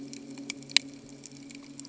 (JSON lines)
{"label": "anthrophony, boat engine", "recorder": "HydroMoth"}